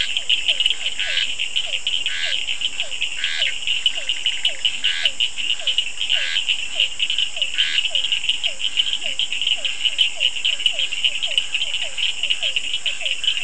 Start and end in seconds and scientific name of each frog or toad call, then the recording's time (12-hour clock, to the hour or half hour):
0.0	8.0	Scinax perereca
0.0	13.4	Physalaemus cuvieri
0.0	13.4	Sphaenorhynchus surdus
0.6	2.8	Leptodactylus latrans
~8pm